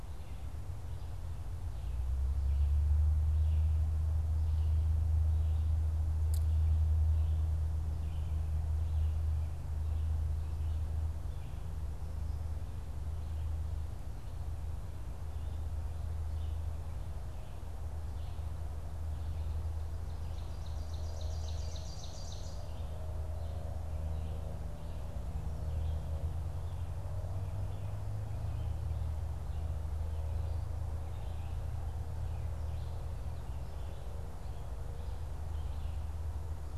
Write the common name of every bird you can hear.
Red-eyed Vireo, Ovenbird